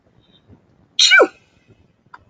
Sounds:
Sneeze